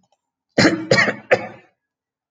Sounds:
Throat clearing